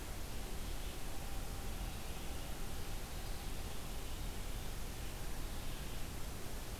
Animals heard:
forest ambience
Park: Marsh-Billings-Rockefeller National Historical Park